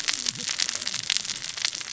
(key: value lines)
label: biophony, cascading saw
recorder: SoundTrap 600 or HydroMoth